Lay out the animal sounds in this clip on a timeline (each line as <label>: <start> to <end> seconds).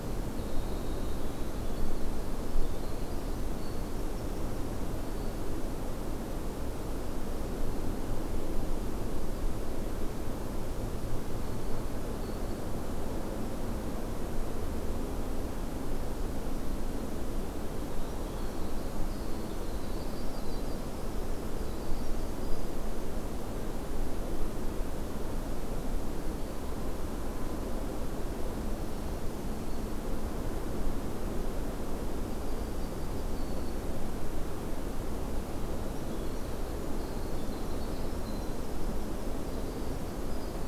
Winter Wren (Troglodytes hiemalis): 0.0 to 5.7 seconds
Black-throated Green Warbler (Setophaga virens): 11.3 to 12.8 seconds
Winter Wren (Troglodytes hiemalis): 17.6 to 23.0 seconds
Black-throated Green Warbler (Setophaga virens): 28.6 to 30.0 seconds
Yellow-rumped Warbler (Setophaga coronata): 32.0 to 33.3 seconds
Black-throated Green Warbler (Setophaga virens): 33.3 to 34.0 seconds
Winter Wren (Troglodytes hiemalis): 35.8 to 40.6 seconds